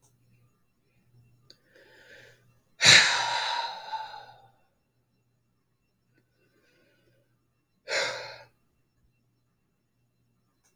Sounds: Sigh